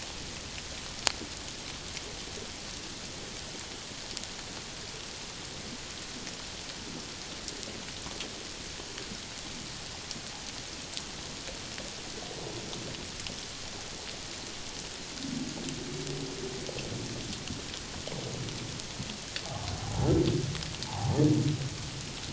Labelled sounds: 20.9	21.1	humpback whale, 0.78 to 1.0 kHz

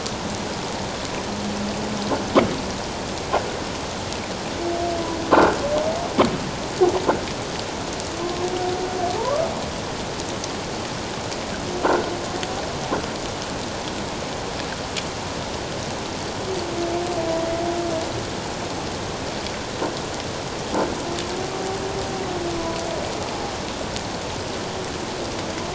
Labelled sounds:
8.2	8.4	humpback whale, 1.0 to 1.2 kHz
9.2	9.5	humpback whale, 0.84 to 1.3 kHz

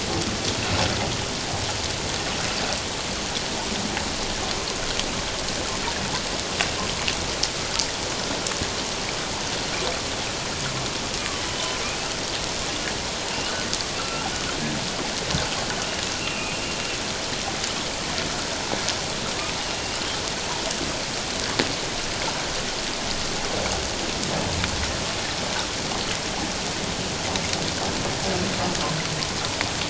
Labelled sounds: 11.5	11.8	humpback whale, 2.9 to 3.1 kHz
14.0	14.3	humpback whale, 1.3 to 2.8 kHz
16.2	16.6	humpback whale, 2.4 to 2.9 kHz
19.7	20.1	humpback whale, 2.7 to 3.0 kHz

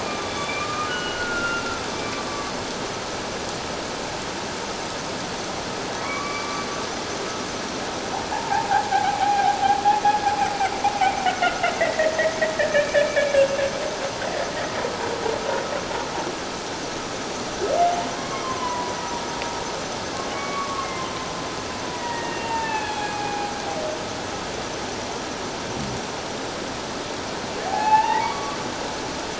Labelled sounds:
0.0	1.7	humpback whale, 1.1 to 3.6 kHz
2.3	2.5	humpback whale, 1.1 to 1.2 kHz
6.0	6.7	humpback whale, 1.1 to 2.4 kHz
8.3	9.6	humpback whale, 0.78 to 0.97 kHz
10.0	10.3	humpback whale, 1.6 to 1.7 kHz
11.3	12.2	humpback whale, 1.3 to 2.3 kHz
12.6	12.9	humpback whale, 1.7 to 2.0 kHz
18.1	19.0	humpback whale, 0.94 to 3.3 kHz
20.1	21.1	humpback whale, 1.0 to 2.3 kHz
21.9	23.5	humpback whale, 0.78 to 3.4 kHz
27.6	28.6	humpback whale, 0.78 to 2.7 kHz

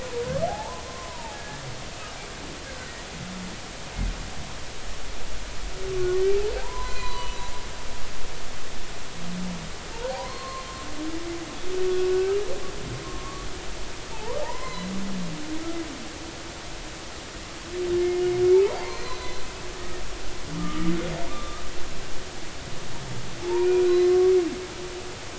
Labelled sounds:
0.1	1.6	humpback whale, 0.80 to 1.8 kHz
2.6	3.0	humpback whale, 1.4 to 1.7 kHz
6.6	8.3	humpback whale, 0.86 to 6.1 kHz
10.1	10.7	humpback whale, 0.80 to 4.3 kHz
12.1	12.4	humpback whale, 1.5 to 1.6 kHz
13.0	13.5	humpback whale, 1.0 to 1.2 kHz
14.1	14.9	humpback whale, 0.80 to 4.2 kHz
18.5	19.5	humpback whale, 0.80 to 4.4 kHz
20.6	21.6	humpback whale, 1.1 to 3.6 kHz
23.4	24.2	humpback whale, 0.83 to 4.1 kHz

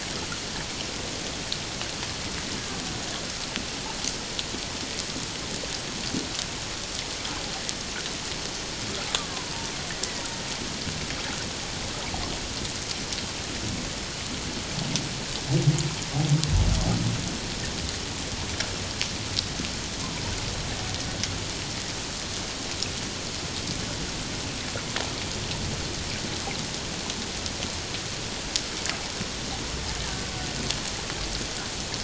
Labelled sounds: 30.0	30.3	killer whale, Bigg's (transient), 1.5 to 1.9 kHz

